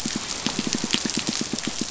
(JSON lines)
{"label": "biophony, pulse", "recorder": "SoundTrap 500"}